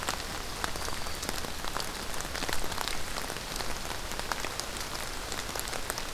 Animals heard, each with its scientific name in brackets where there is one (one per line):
Black-throated Green Warbler (Setophaga virens)